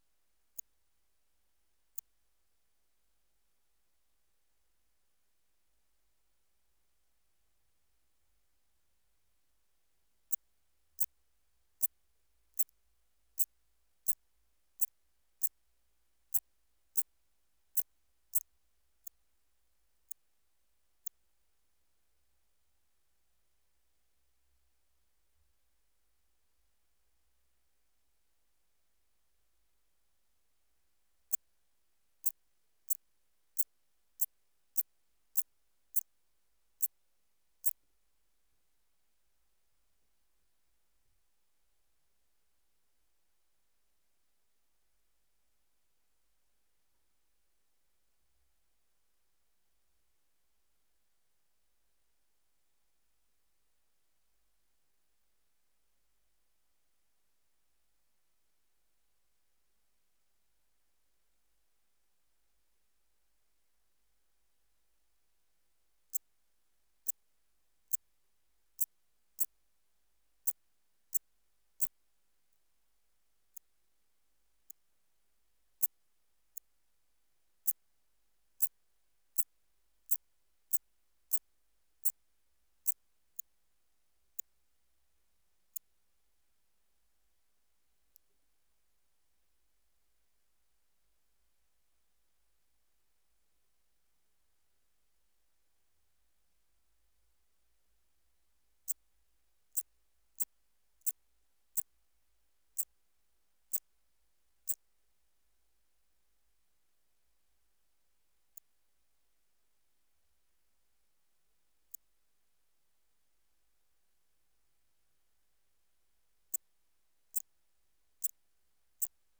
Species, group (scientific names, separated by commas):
Eupholidoptera schmidti, Orthoptera